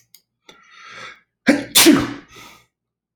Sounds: Sneeze